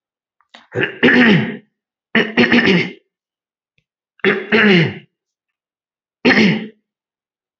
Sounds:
Throat clearing